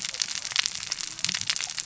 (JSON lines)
{"label": "biophony, cascading saw", "recorder": "SoundTrap 600 or HydroMoth"}